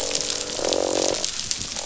{"label": "biophony, croak", "recorder": "SoundTrap 500"}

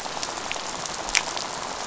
{"label": "biophony, rattle", "recorder": "SoundTrap 500"}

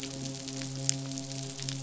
{"label": "biophony, midshipman", "recorder": "SoundTrap 500"}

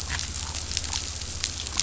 {"label": "anthrophony, boat engine", "recorder": "SoundTrap 500"}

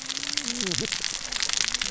{"label": "biophony, cascading saw", "recorder": "SoundTrap 600 or HydroMoth"}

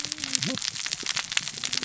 {"label": "biophony, cascading saw", "recorder": "SoundTrap 600 or HydroMoth"}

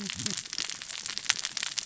{"label": "biophony, cascading saw", "recorder": "SoundTrap 600 or HydroMoth"}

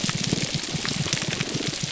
{"label": "biophony, grouper groan", "recorder": "SoundTrap 300"}
{"label": "biophony, damselfish", "recorder": "SoundTrap 300"}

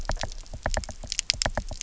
{"label": "biophony, knock", "recorder": "SoundTrap 300"}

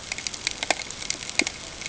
{"label": "ambient", "recorder": "HydroMoth"}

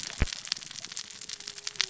{"label": "biophony, cascading saw", "recorder": "SoundTrap 600 or HydroMoth"}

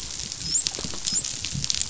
{"label": "biophony, dolphin", "recorder": "SoundTrap 500"}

